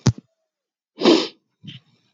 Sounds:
Sniff